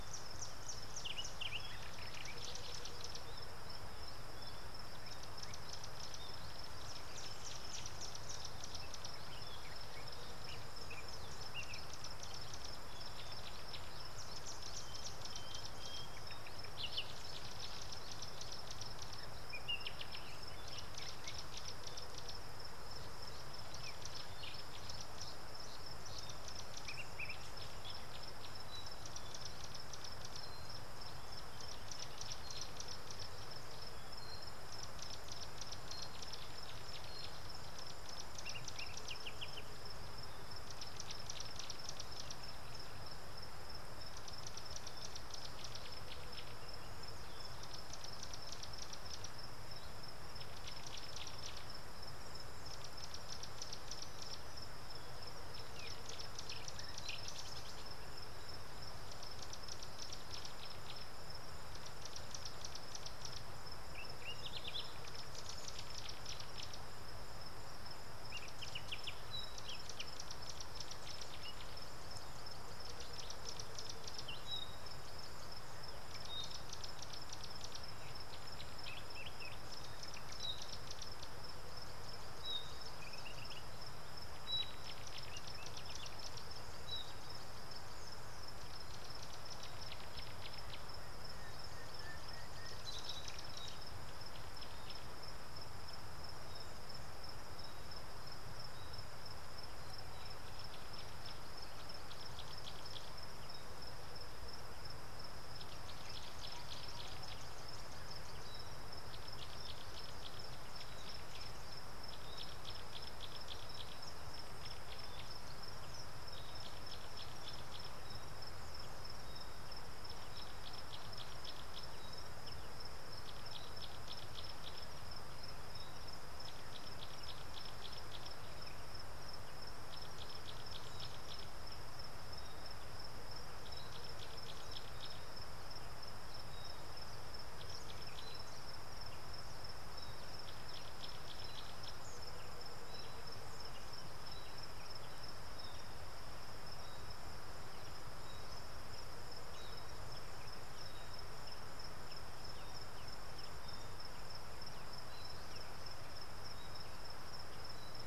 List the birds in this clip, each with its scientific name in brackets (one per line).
Tawny-flanked Prinia (Prinia subflava)
Gray-backed Camaroptera (Camaroptera brevicaudata)